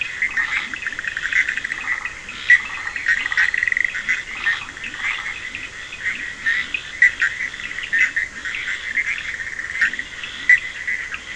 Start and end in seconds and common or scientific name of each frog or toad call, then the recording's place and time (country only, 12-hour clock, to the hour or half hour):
0.0	11.3	Bischoff's tree frog
0.0	11.3	Scinax perereca
0.0	11.3	Cochran's lime tree frog
0.3	11.3	Leptodactylus latrans
2.4	4.3	Dendropsophus nahdereri
Brazil, ~1am